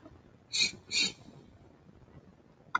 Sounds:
Sniff